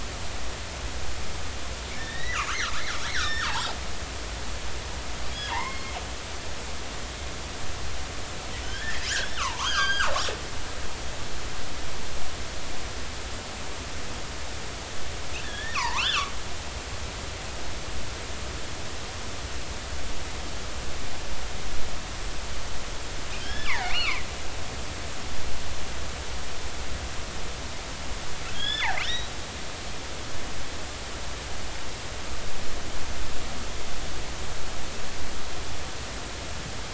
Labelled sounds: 2.0	3.7	killer whale, northern resident, G clan, GG subclan, call N29, 0.80 to 5.8 kHz
5.3	6.0	killer whale, northern resident, G clan, call N23i, 0.80 to 3.4 kHz
8.6	9.1	killer whale, northern resident, G clan, GG subclan, call N29, 1.4 to 3.4 kHz
9.4	10.1	killer whale, northern resident, G clan, GG subclan, call N29, 0.80 to 5.0 kHz
15.4	16.3	killer whale, northern resident, G clan, GG subclan, call N29, 0.83 to 3.6 kHz
23.4	24.3	killer whale, northern resident, G clan, GG subclan, call N29, 0.80 to 5.4 kHz
28.5	29.3	killer whale, northern resident, G clan, GG subclan, call N28, 1.2 to 5.9 kHz

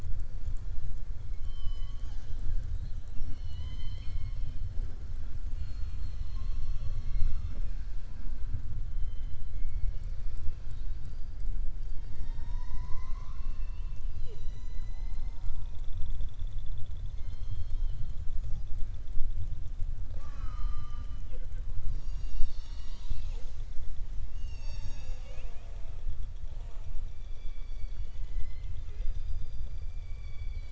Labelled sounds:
2.9	4.6	killer whale, southern resident, 1.0 to 7.4 kHz
9.5	10.1	killer whale, southern resident, 2.1 to 3.0 kHz
10.5	11.4	killer whale, southern resident, 3.1 to 5.0 kHz

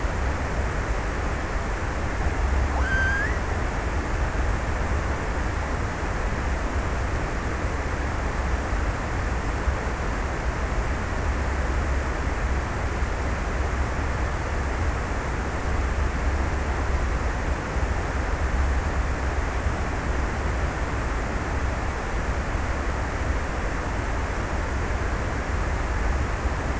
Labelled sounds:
1.9	3.8	killer whale, Bigg's (transient), 0.87 to 2.1 kHz

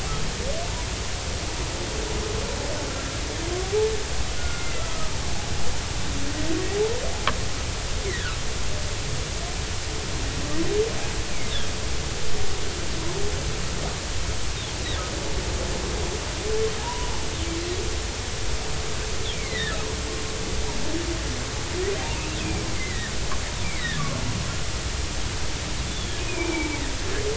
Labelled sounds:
4.4	5.2	humpback whale, 1.2 to 2.1 kHz
8.1	8.4	humpback whale, 1.2 to 2.2 kHz
11.5	11.7	humpback whale, 3.2 to 3.8 kHz
16.8	17.1	humpback whale, 0.80 to 1.0 kHz
19.3	19.8	humpback whale, 1.7 to 2.5 kHz
22.4	23.1	humpback whale, 1.6 to 2.6 kHz
23.6	24.0	humpback whale, 1.6 to 2.4 kHz
25.9	26.8	humpback whale, 2.1 to 3.6 kHz

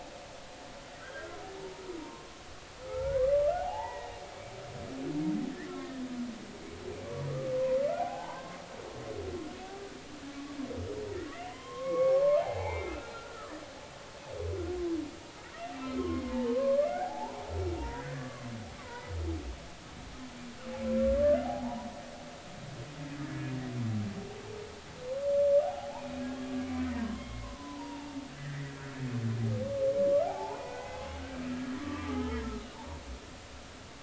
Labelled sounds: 1.0	2.3	humpback whale, 0.90 to 1.7 kHz
2.9	4.1	humpback whale, 0.80 to 2.0 kHz
7.3	7.5	humpback whale, 1.1 to 1.3 kHz
7.9	8.6	humpback whale, 0.80 to 1.7 kHz
11.5	13.5	humpback whale, 0.80 to 3.3 kHz
16.0	17.5	humpback whale, 0.80 to 2.2 kHz
17.8	19.1	humpback whale, 0.86 to 2.0 kHz
21.4	21.9	humpback whale, 0.80 to 1.0 kHz
23.3	23.5	humpback whale, 1.6 to 1.8 kHz
25.6	28.8	humpback whale, 0.80 to 3.3 kHz
30.3	31.1	humpback whale, 0.80 to 2.7 kHz
31.5	32.4	humpback whale, 1.1 to 1.8 kHz
32.8	33.0	humpback whale, 0.80 to 1.0 kHz

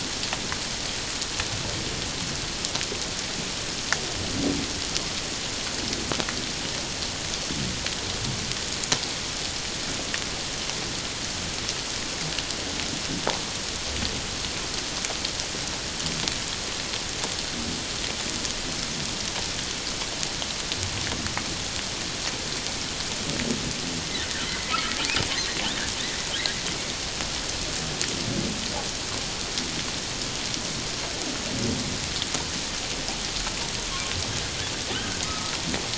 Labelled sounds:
24.4	24.7	humpback whale, 1.9 to 2.1 kHz
35.2	35.5	humpback whale, 1.2 to 1.3 kHz

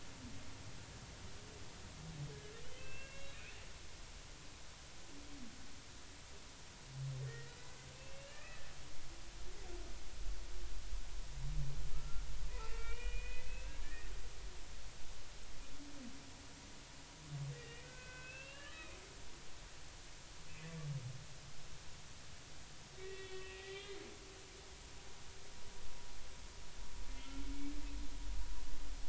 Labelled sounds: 2.8	3.4	humpback whale, 1.5 to 2.8 kHz
7.2	8.6	humpback whale, 1.2 to 2.9 kHz
11.9	14.1	humpback whale, 1.2 to 3.0 kHz
17.5	19.0	humpback whale, 1.2 to 3.9 kHz
23.0	24.0	humpback whale, 1.8 to 3.7 kHz
27.2	27.5	humpback whale, 1.3 to 1.4 kHz

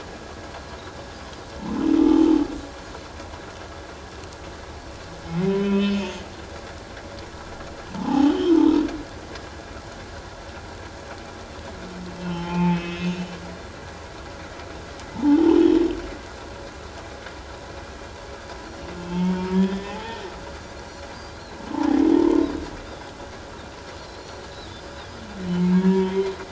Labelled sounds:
2.0	2.3	humpback whale, 0.81 to 0.91 kHz
5.4	6.1	humpback whale, 1.8 to 3.3 kHz
8.0	8.8	humpback whale, 0.78 to 3.3 kHz
12.2	13.4	humpback whale, 0.81 to 3.7 kHz
15.1	15.6	humpback whale, 0.78 to 1.1 kHz
19.1	20.2	humpback whale, 0.78 to 3.5 kHz
20.8	21.6	Pacific white-sided dolphin, 3.9 to 4.8 kHz
22.2	22.4	humpback whale, 0.88 to 1.1 kHz
22.8	23.1	Pacific white-sided dolphin, 3.3 to 3.8 kHz
24.0	24.8	Pacific white-sided dolphin, 3.3 to 4.4 kHz
24.7	25.2	humpback whale, 4.8 to 5.1 kHz
25.6	26.3	humpback whale, 0.84 to 3.4 kHz

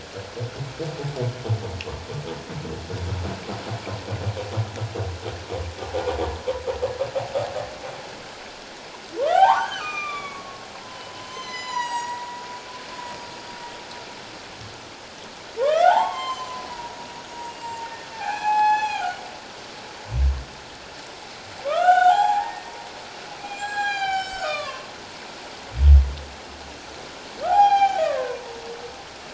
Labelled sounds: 9.2	10.6	humpback whale, 0.78 to 7.0 kHz
11.0	12.4	humpback whale, 0.88 to 7.8 kHz
15.6	16.7	humpback whale, 0.78 to 7.5 kHz
17.3	19.2	humpback whale, 0.78 to 7.6 kHz
21.7	24.9	humpback whale, 0.78 to 7.8 kHz
27.4	28.5	humpback whale, 0.78 to 7.2 kHz

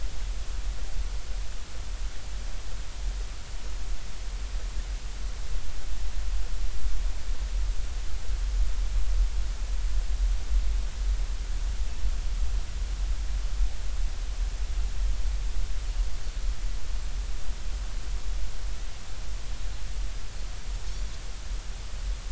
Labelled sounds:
16.2	16.5	Pacific white-sided dolphin, 4.2 to 4.5 kHz

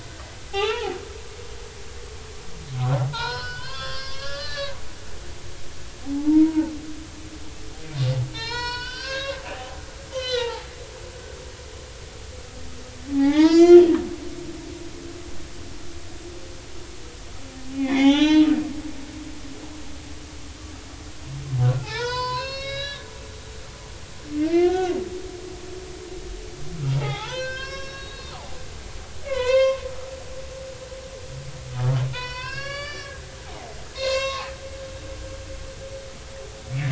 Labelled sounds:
0.5	1.0	humpback whale, 0.80 to 3.0 kHz
3.1	4.8	humpback whale, 0.86 to 5.5 kHz
6.0	6.7	humpback whale, 0.80 to 1.0 kHz
8.3	9.4	humpback whale, 0.86 to 5.8 kHz
10.1	10.7	humpback whale, 0.80 to 4.7 kHz
13.1	13.8	humpback whale, 0.80 to 6.0 kHz
17.7	18.5	humpback whale, 0.80 to 6.0 kHz
21.6	23.1	humpback whale, 0.80 to 6.5 kHz
24.4	25.0	humpback whale, 1.3 to 3.4 kHz
26.9	28.6	humpback whale, 0.80 to 6.9 kHz
29.2	29.8	humpback whale, 0.93 to 6.4 kHz
32.1	33.2	humpback whale, 0.93 to 5.8 kHz
33.9	34.5	humpback whale, 0.80 to 7.6 kHz

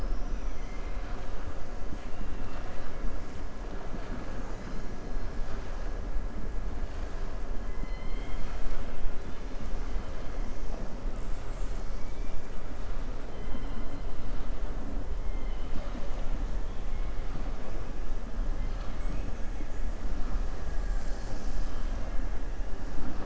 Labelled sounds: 0.4	1.2	killer whale, southern resident, 1.4 to 4.0 kHz
13.3	13.9	killer whale, southern resident, 2.0 to 4.1 kHz

